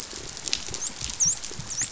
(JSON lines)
{"label": "biophony, dolphin", "recorder": "SoundTrap 500"}